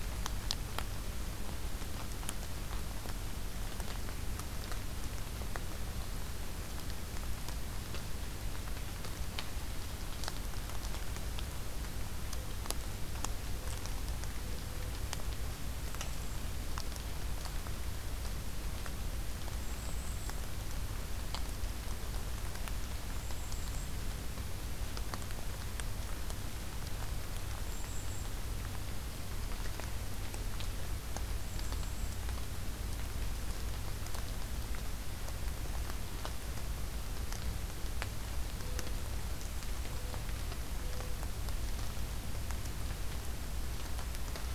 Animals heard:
Golden-crowned Kinglet (Regulus satrapa)
Mourning Dove (Zenaida macroura)

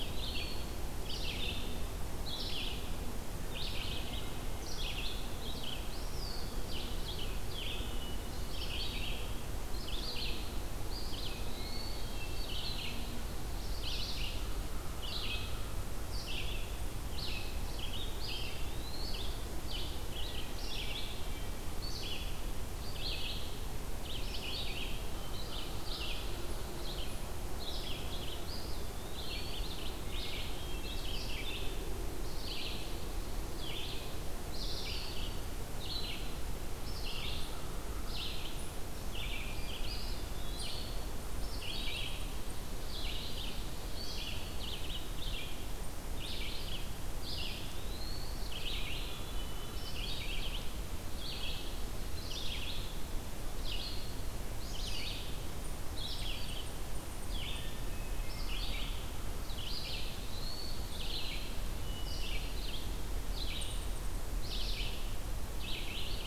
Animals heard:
unidentified call
American Crow (Corvus brachyrhynchos)
Red-eyed Vireo (Vireo olivaceus)
Eastern Wood-Pewee (Contopus virens)
Hermit Thrush (Catharus guttatus)

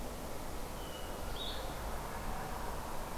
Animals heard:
Blue-headed Vireo (Vireo solitarius)
Hermit Thrush (Catharus guttatus)

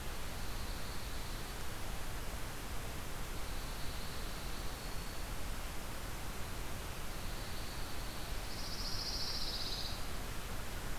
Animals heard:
Dark-eyed Junco (Junco hyemalis)
Black-throated Green Warbler (Setophaga virens)
Pine Warbler (Setophaga pinus)

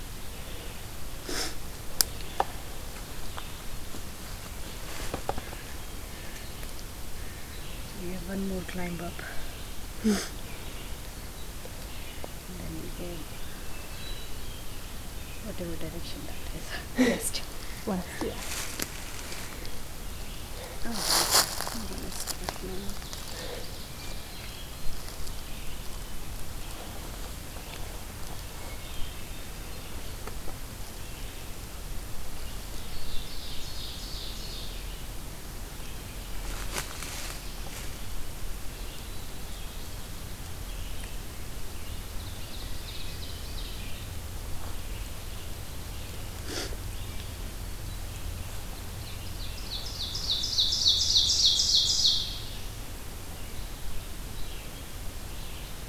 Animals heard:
Hermit Thrush (Catharus guttatus)
Ovenbird (Seiurus aurocapilla)
Red-eyed Vireo (Vireo olivaceus)

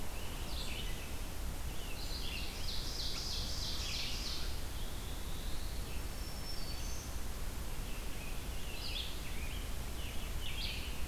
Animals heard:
Black-throated Green Warbler (Setophaga virens)
Scarlet Tanager (Piranga olivacea)
Red-eyed Vireo (Vireo olivaceus)
Ovenbird (Seiurus aurocapilla)
Black-throated Blue Warbler (Setophaga caerulescens)

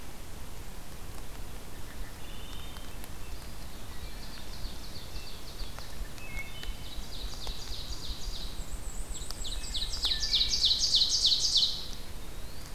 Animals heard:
Ruffed Grouse (Bonasa umbellus)
Black-and-white Warbler (Mniotilta varia)
Eastern Wood-Pewee (Contopus virens)
Wood Thrush (Hylocichla mustelina)
Ovenbird (Seiurus aurocapilla)

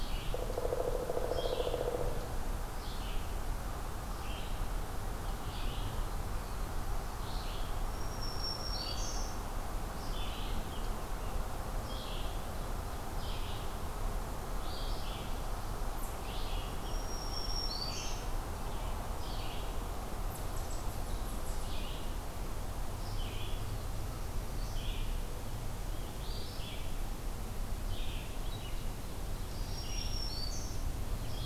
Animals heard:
unknown mammal
Black-throated Green Warbler (Setophaga virens)
Red-eyed Vireo (Vireo olivaceus)

